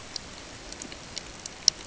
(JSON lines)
{"label": "ambient", "recorder": "HydroMoth"}